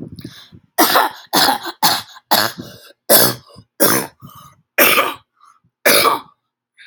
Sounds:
Cough